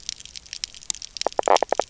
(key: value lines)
label: biophony, knock croak
recorder: SoundTrap 300